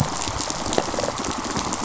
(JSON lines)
{"label": "biophony, rattle response", "recorder": "SoundTrap 500"}